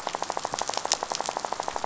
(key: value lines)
label: biophony, rattle
recorder: SoundTrap 500